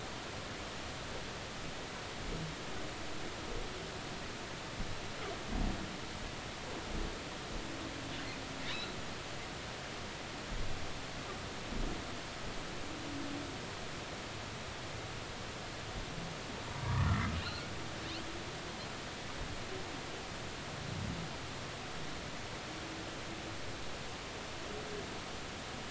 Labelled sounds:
8.7	9.0	humpback whale, 3.5 to 4.3 kHz
16.7	17.7	humpback whale, 0.93 to 4.4 kHz

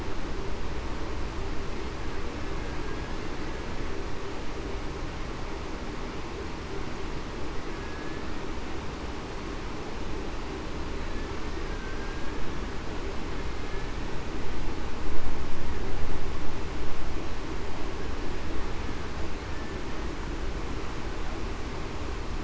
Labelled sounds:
7.8	8.2	killer whale, Bigg's (transient), 1.6 to 1.8 kHz
11.6	12.3	killer whale, Bigg's (transient), 1.5 to 1.7 kHz

